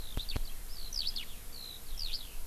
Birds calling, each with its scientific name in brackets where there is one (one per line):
Eurasian Skylark (Alauda arvensis)